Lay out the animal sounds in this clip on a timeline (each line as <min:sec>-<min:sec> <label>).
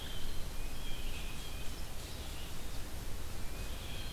0:00.0-0:04.1 Blue Jay (Cyanocitta cristata)
0:00.0-0:04.1 Red-eyed Vireo (Vireo olivaceus)
0:00.4-0:01.8 Tufted Titmouse (Baeolophus bicolor)
0:03.4-0:04.1 Tufted Titmouse (Baeolophus bicolor)